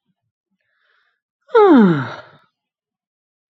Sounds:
Sigh